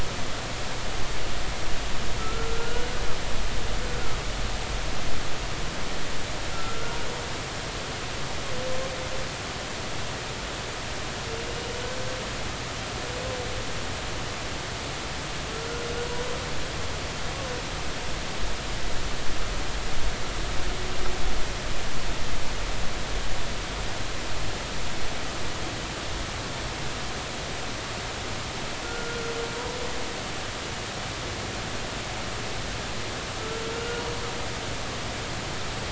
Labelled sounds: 2.2	2.9	humpback whale, 1.2 to 1.5 kHz
7.5	7.9	humpback whale, 1.2 to 1.5 kHz
11.4	11.8	humpback whale, 2.8 to 3.0 kHz
28.8	29.3	humpback whale, 1.3 to 1.5 kHz

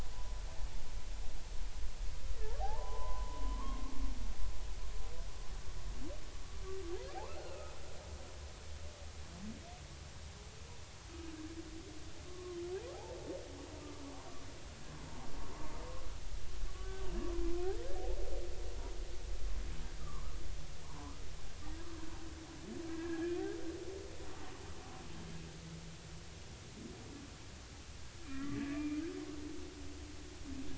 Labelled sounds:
2.6	3.9	humpback whale, 0.80 to 1.2 kHz
7.3	7.7	humpback whale, 1.2 to 1.5 kHz
12.3	12.6	humpback whale, 1.0 to 1.2 kHz
20.0	20.3	humpback whale, 0.99 to 1.3 kHz
20.8	21.2	humpback whale, 0.83 to 1.3 kHz
22.9	23.5	humpback whale, 1.6 to 2.0 kHz
28.3	29.0	humpback whale, 1.1 to 2.4 kHz

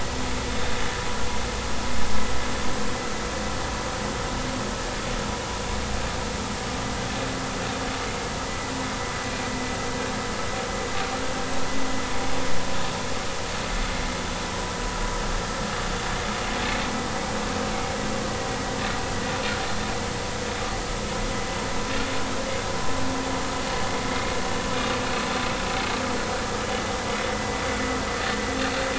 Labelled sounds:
26.6	26.8	vessel noise, 2.9 to 3.0 kHz
27.3	27.6	vessel noise, 1.9 to 2.0 kHz

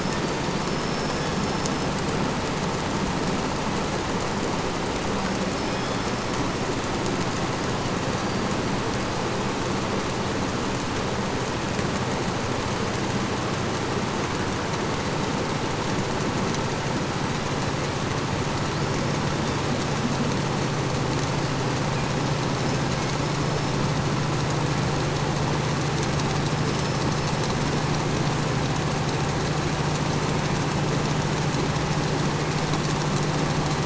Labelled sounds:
0.1	2.1	killer whale, 0.29 to 5.7 kHz
5.2	6.8	killer whale, 1.6 to 5.5 kHz
7.7	9.5	killer whale, 4.3 to 5.0 kHz
21.5	23.8	killer whale, 1.4 to 5.5 kHz
26.4	28.1	killer whale, 5.0 to 5.5 kHz

